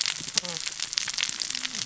{"label": "biophony, cascading saw", "recorder": "SoundTrap 600 or HydroMoth"}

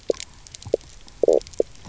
{"label": "biophony, knock croak", "recorder": "SoundTrap 300"}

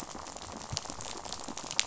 {"label": "biophony, rattle", "recorder": "SoundTrap 500"}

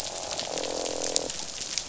{"label": "biophony, croak", "recorder": "SoundTrap 500"}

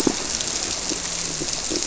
{"label": "biophony", "recorder": "SoundTrap 300"}
{"label": "biophony, grouper", "recorder": "SoundTrap 300"}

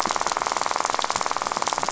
{"label": "biophony, rattle", "recorder": "SoundTrap 500"}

